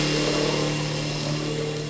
{"label": "anthrophony, boat engine", "recorder": "SoundTrap 500"}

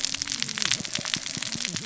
{"label": "biophony, cascading saw", "recorder": "SoundTrap 600 or HydroMoth"}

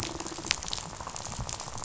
{"label": "biophony, rattle", "recorder": "SoundTrap 500"}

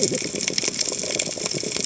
{"label": "biophony, cascading saw", "recorder": "HydroMoth"}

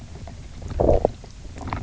{"label": "biophony, knock croak", "recorder": "SoundTrap 300"}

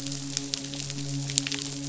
{"label": "biophony, midshipman", "recorder": "SoundTrap 500"}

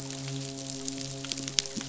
{"label": "biophony, midshipman", "recorder": "SoundTrap 500"}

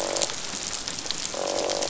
{"label": "biophony, croak", "recorder": "SoundTrap 500"}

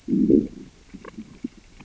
{"label": "biophony, growl", "recorder": "SoundTrap 600 or HydroMoth"}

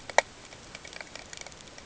{"label": "ambient", "recorder": "HydroMoth"}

